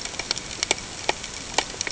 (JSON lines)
{"label": "ambient", "recorder": "HydroMoth"}